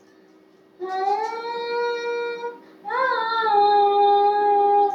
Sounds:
Sigh